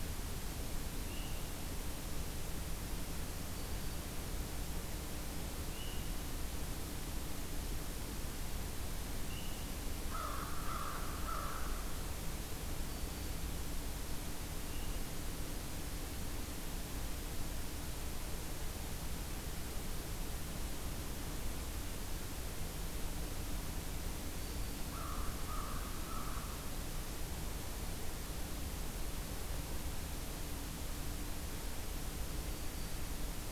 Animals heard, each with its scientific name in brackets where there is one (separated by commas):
American Crow (Corvus brachyrhynchos), Black-throated Green Warbler (Setophaga virens)